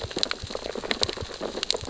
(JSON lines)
{"label": "biophony, sea urchins (Echinidae)", "recorder": "SoundTrap 600 or HydroMoth"}